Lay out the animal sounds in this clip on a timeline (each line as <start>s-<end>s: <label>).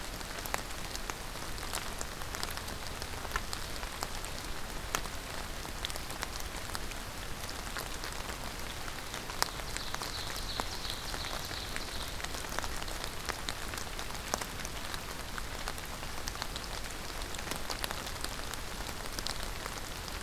9.6s-12.3s: Ovenbird (Seiurus aurocapilla)